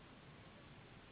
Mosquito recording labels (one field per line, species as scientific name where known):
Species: Anopheles gambiae s.s.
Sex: female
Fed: unfed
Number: one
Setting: insect culture